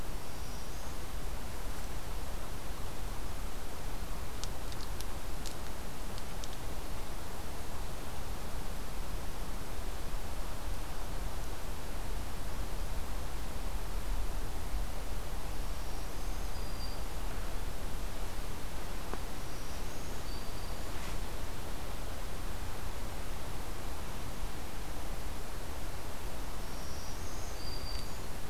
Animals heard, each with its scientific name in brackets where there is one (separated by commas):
Black-throated Green Warbler (Setophaga virens)